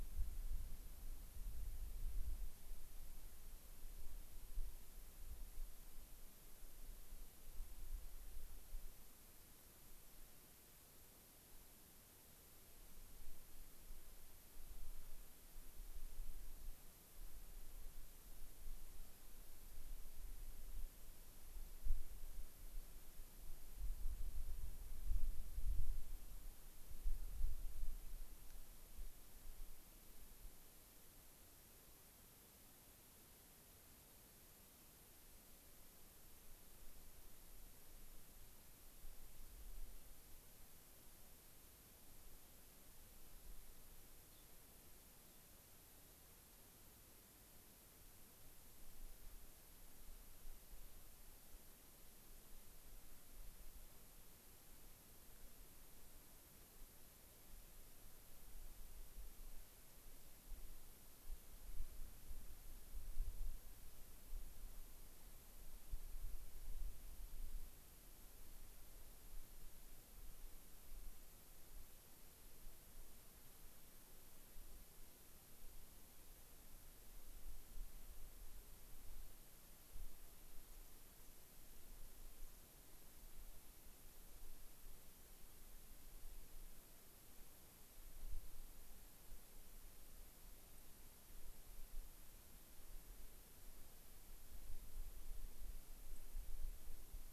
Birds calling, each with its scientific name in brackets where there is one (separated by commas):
Gray-crowned Rosy-Finch (Leucosticte tephrocotis), White-crowned Sparrow (Zonotrichia leucophrys)